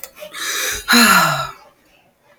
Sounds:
Sigh